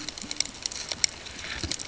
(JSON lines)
{"label": "ambient", "recorder": "HydroMoth"}